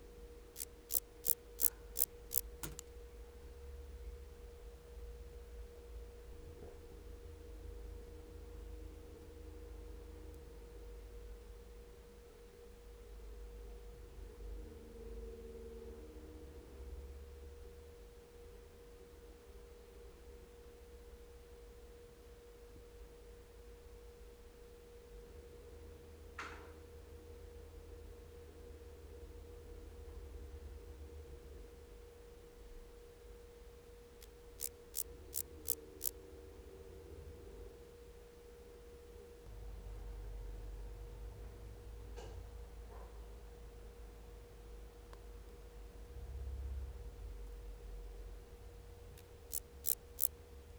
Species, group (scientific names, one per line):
Dociostaurus jagoi
Orthoptera